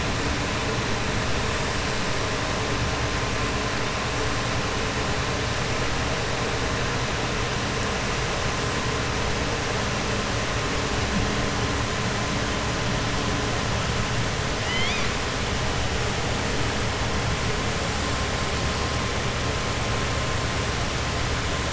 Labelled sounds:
14.6	15.1	killer whale, southern resident, 2.0 to 5.8 kHz

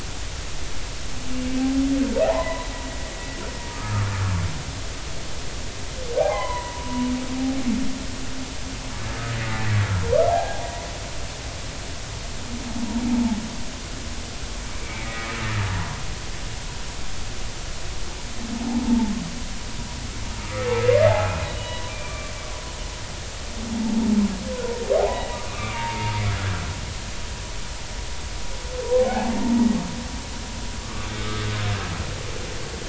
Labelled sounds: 2.2	2.7	humpback whale, 0.80 to 4.0 kHz
3.7	4.1	humpback whale, 1.1 to 1.5 kHz
6.2	7.1	humpback whale, 0.80 to 3.2 kHz
10.3	10.6	humpback whale, 0.80 to 1.7 kHz
14.8	15.3	humpback whale, 1.9 to 2.4 kHz
18.8	19.1	humpback whale, 0.83 to 0.96 kHz
20.4	22.3	humpback whale, 0.80 to 3.0 kHz
25.0	26.1	humpback whale, 0.80 to 2.7 kHz
29.0	29.4	humpback whale, 0.80 to 0.93 kHz
30.8	31.1	humpback whale, 1.1 to 1.3 kHz

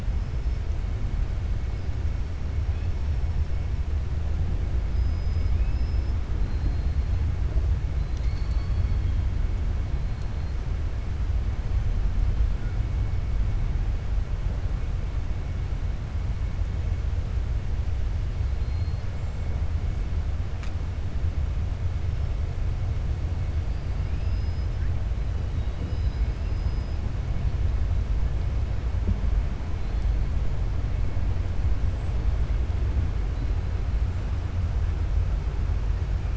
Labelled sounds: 0.1	0.7	killer whale, 5.1 to 6.0 kHz
4.8	5.6	killer whale, 4.7 to 5.7 kHz
24.2	24.8	killer whale, 4.1 to 5.3 kHz

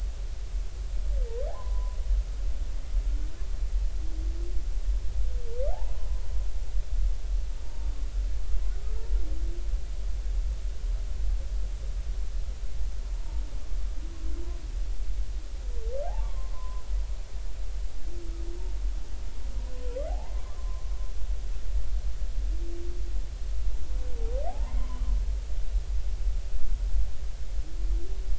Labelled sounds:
1.5	2.0	humpback whale, 0.80 to 1.1 kHz
7.6	7.9	humpback whale, 0.86 to 0.99 kHz
8.8	9.1	humpback whale, 1.2 to 1.4 kHz
16.0	16.8	humpback whale, 0.80 to 1.2 kHz
20.1	20.8	humpback whale, 0.80 to 1.1 kHz
24.5	25.0	humpback whale, 0.80 to 1.1 kHz

